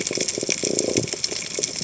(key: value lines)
label: biophony
recorder: HydroMoth